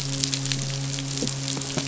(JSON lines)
{"label": "biophony, midshipman", "recorder": "SoundTrap 500"}